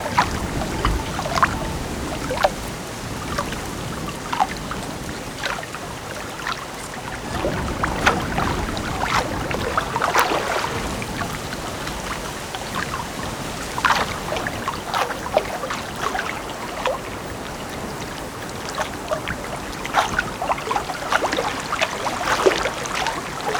Is there a motorboat?
no